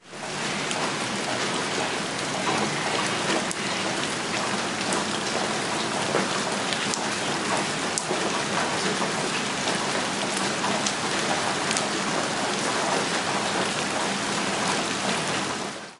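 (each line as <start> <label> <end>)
0.0 Raindrops are falling on a surface. 16.0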